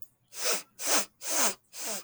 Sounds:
Sniff